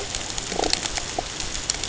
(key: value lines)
label: ambient
recorder: HydroMoth